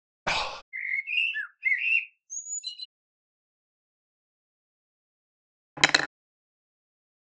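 At 0.26 seconds, someone breathes. Then, at 0.72 seconds, a bird can be heard. Later, at 5.77 seconds, the sound of cutlery is audible.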